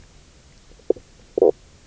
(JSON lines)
{"label": "biophony, knock croak", "recorder": "SoundTrap 300"}